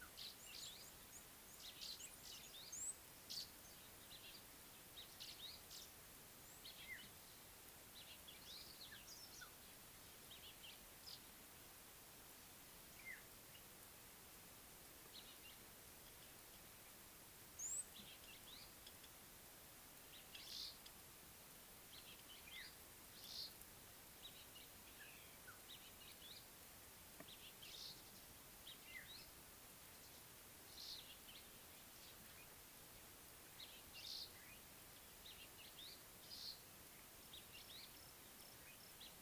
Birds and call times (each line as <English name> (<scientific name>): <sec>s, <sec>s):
African Black-headed Oriole (Oriolus larvatus): 6.9s
Red-cheeked Cordonbleu (Uraeginthus bengalus): 17.7s